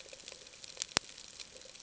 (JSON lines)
{"label": "ambient", "recorder": "HydroMoth"}